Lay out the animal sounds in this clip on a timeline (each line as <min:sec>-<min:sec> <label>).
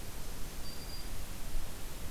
0:00.5-0:01.4 Black-throated Green Warbler (Setophaga virens)